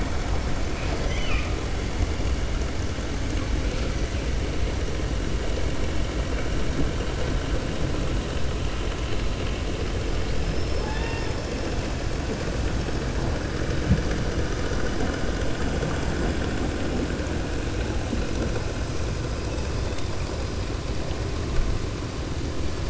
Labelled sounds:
0.8	1.5	killer whale, 1.1 to 6.1 kHz
10.4	11.5	killer whale, 0.85 to 5.5 kHz

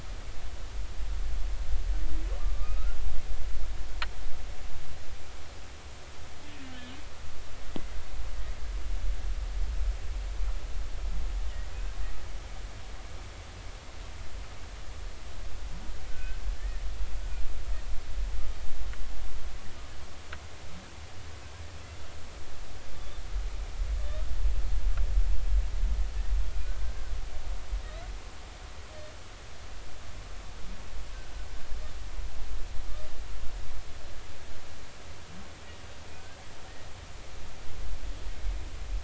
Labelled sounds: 2.4	3.0	humpback whale, 1.1 to 1.5 kHz
16.1	16.8	humpback whale, 1.5 to 1.9 kHz
26.6	27.1	humpback whale, 1.4 to 1.7 kHz

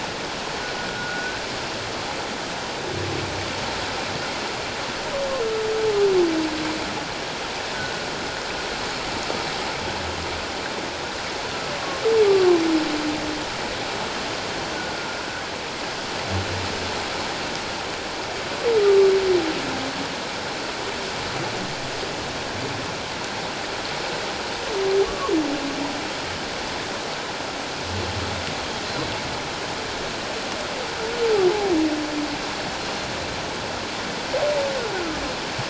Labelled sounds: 0.9	1.4	humpback whale, 1.4 to 1.7 kHz
7.7	8.0	humpback whale, 1.4 to 1.5 kHz
25.0	25.3	humpback whale, 1.0 to 1.2 kHz
34.9	35.2	humpback whale, 1.2 to 1.6 kHz

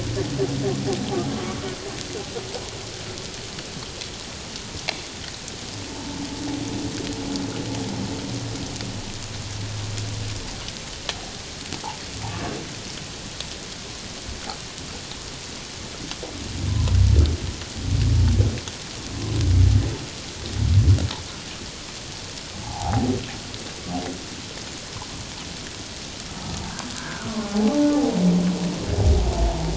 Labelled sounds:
5.9	6.2	humpback whale, 0.84 to 0.97 kHz
16.7	17.0	humpback whale, 0.94 to 1.1 kHz
22.6	23.1	humpback whale, 0.78 to 1.0 kHz
27.0	27.9	humpback whale, 0.78 to 1.7 kHz

